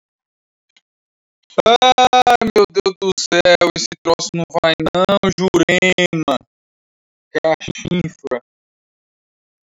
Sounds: Laughter